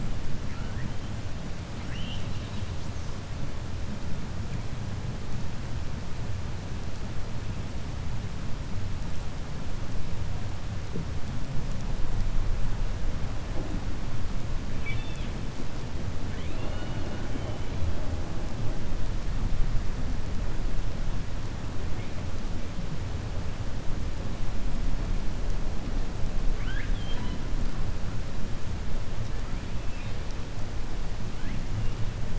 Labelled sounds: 1.7	2.7	killer whale, 1.6 to 4.5 kHz

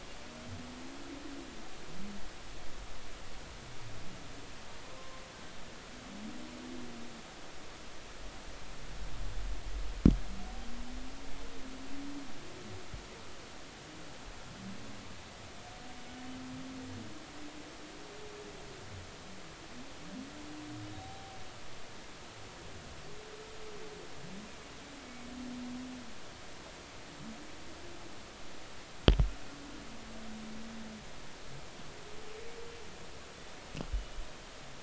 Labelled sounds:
5.0	5.2	humpback whale, 0.99 to 1.1 kHz
21.0	21.4	humpback whale, 0.80 to 0.90 kHz
25.0	25.3	humpback whale, 2.2 to 2.3 kHz

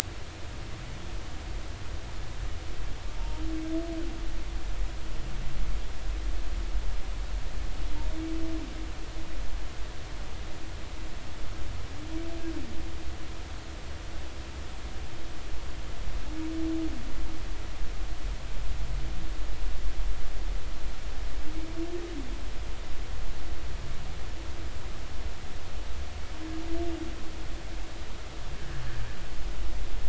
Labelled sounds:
3.1	3.4	humpback whale, 0.86 to 0.96 kHz

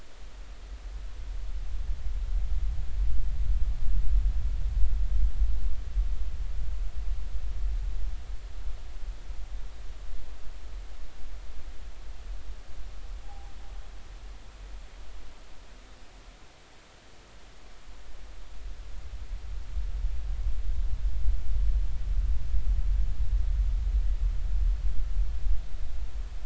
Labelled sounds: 13.2	13.5	humpback whale, 0.80 to 1.0 kHz

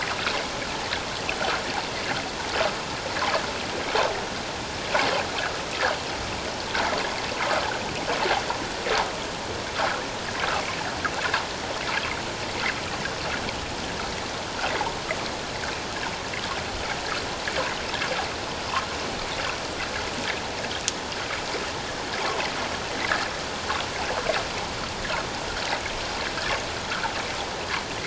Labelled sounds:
9.8	10.0	water noise, 1.2 to 1.8 kHz
22.2	22.5	water noise, 0.78 to 1.4 kHz

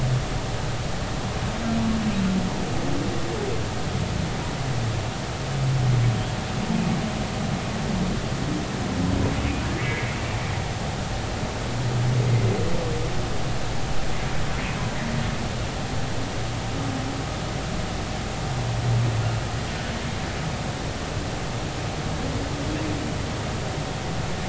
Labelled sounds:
9.8	10.0	humpback whale, 1.9 to 2.3 kHz

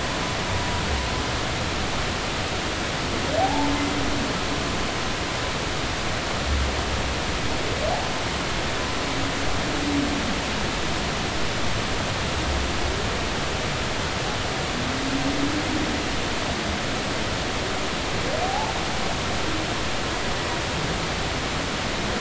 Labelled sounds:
0.5	0.8	humpback whale, 0.93 to 0.99 kHz
3.4	3.7	humpback whale, 0.80 to 1.0 kHz
18.4	18.7	humpback whale, 0.80 to 0.99 kHz

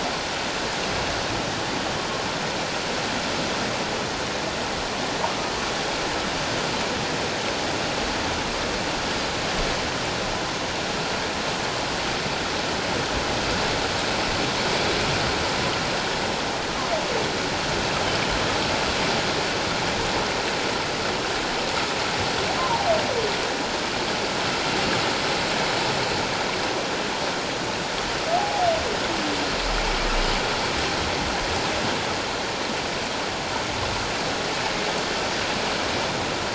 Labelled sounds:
28.4	28.7	humpback whale, 0.78 to 0.88 kHz

